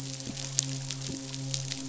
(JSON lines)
{"label": "biophony", "recorder": "SoundTrap 500"}
{"label": "biophony, midshipman", "recorder": "SoundTrap 500"}